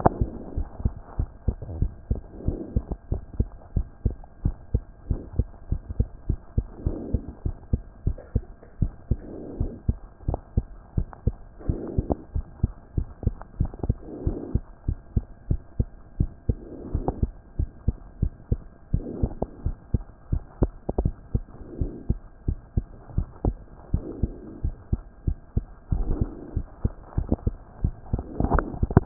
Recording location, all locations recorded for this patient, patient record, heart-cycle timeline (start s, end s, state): mitral valve (MV)
aortic valve (AV)+pulmonary valve (PV)+tricuspid valve (TV)+mitral valve (MV)
#Age: Child
#Sex: Male
#Height: 117.0 cm
#Weight: 21.7 kg
#Pregnancy status: False
#Murmur: Absent
#Murmur locations: nan
#Most audible location: nan
#Systolic murmur timing: nan
#Systolic murmur shape: nan
#Systolic murmur grading: nan
#Systolic murmur pitch: nan
#Systolic murmur quality: nan
#Diastolic murmur timing: nan
#Diastolic murmur shape: nan
#Diastolic murmur grading: nan
#Diastolic murmur pitch: nan
#Diastolic murmur quality: nan
#Outcome: Normal
#Campaign: 2014 screening campaign
0.00	0.44	unannotated
0.44	0.56	diastole
0.56	0.68	S1
0.68	0.84	systole
0.84	0.94	S2
0.94	1.18	diastole
1.18	1.28	S1
1.28	1.46	systole
1.46	1.56	S2
1.56	1.78	diastole
1.78	1.92	S1
1.92	2.10	systole
2.10	2.20	S2
2.20	2.46	diastole
2.46	2.58	S1
2.58	2.74	systole
2.74	2.84	S2
2.84	3.10	diastole
3.10	3.22	S1
3.22	3.38	systole
3.38	3.48	S2
3.48	3.74	diastole
3.74	3.86	S1
3.86	4.04	systole
4.04	4.16	S2
4.16	4.44	diastole
4.44	4.56	S1
4.56	4.72	systole
4.72	4.82	S2
4.82	5.08	diastole
5.08	5.20	S1
5.20	5.36	systole
5.36	5.46	S2
5.46	5.70	diastole
5.70	5.82	S1
5.82	5.98	systole
5.98	6.08	S2
6.08	6.28	diastole
6.28	6.38	S1
6.38	6.56	systole
6.56	6.66	S2
6.66	6.84	diastole
6.84	6.98	S1
6.98	7.12	systole
7.12	7.22	S2
7.22	7.44	diastole
7.44	7.56	S1
7.56	7.72	systole
7.72	7.82	S2
7.82	8.06	diastole
8.06	8.16	S1
8.16	8.34	systole
8.34	8.44	S2
8.44	8.80	diastole
8.80	8.92	S1
8.92	9.10	systole
9.10	9.20	S2
9.20	9.58	diastole
9.58	9.72	S1
9.72	9.88	systole
9.88	9.96	S2
9.96	10.28	diastole
10.28	10.40	S1
10.40	10.56	systole
10.56	10.66	S2
10.66	10.96	diastole
10.96	11.08	S1
11.08	11.26	systole
11.26	11.36	S2
11.36	11.68	diastole
11.68	11.80	S1
11.80	11.96	systole
11.96	12.06	S2
12.06	12.34	diastole
12.34	12.46	S1
12.46	12.62	systole
12.62	12.72	S2
12.72	12.96	diastole
12.96	13.08	S1
13.08	13.24	systole
13.24	13.34	S2
13.34	13.58	diastole
13.58	13.70	S1
13.70	13.86	systole
13.86	13.96	S2
13.96	14.24	diastole
14.24	14.38	S1
14.38	14.52	systole
14.52	14.62	S2
14.62	14.86	diastole
14.86	14.98	S1
14.98	15.14	systole
15.14	15.24	S2
15.24	15.48	diastole
15.48	15.60	S1
15.60	15.78	systole
15.78	15.88	S2
15.88	16.18	diastole
16.18	16.30	S1
16.30	16.48	systole
16.48	16.58	S2
16.58	16.92	diastole
16.92	29.06	unannotated